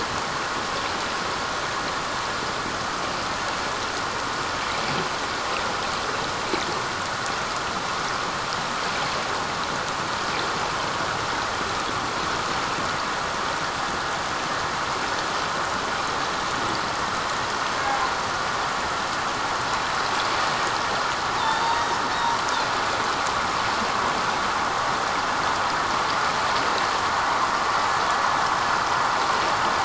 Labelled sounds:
21.4	21.9	killer whale, northern resident, G clan, 0.84 to 3.9 kHz

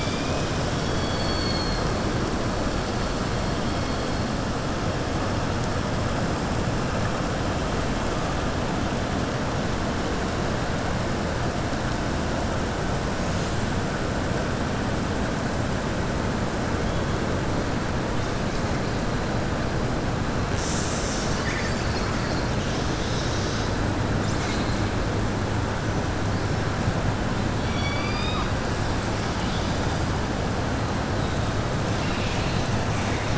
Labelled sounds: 27.5	28.5	killer whale, southern resident, 1.1 to 5.7 kHz

